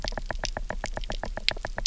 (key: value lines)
label: biophony, knock
recorder: SoundTrap 300